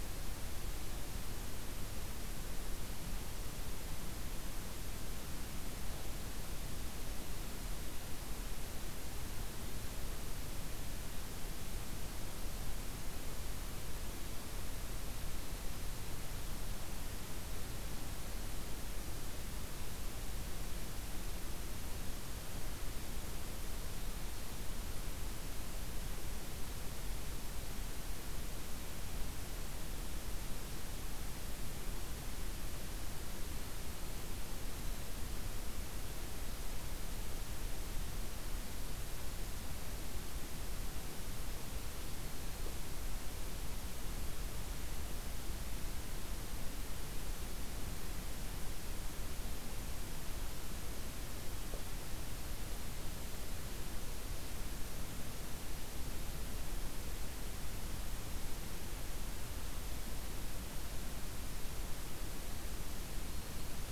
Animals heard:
forest ambience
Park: Acadia National Park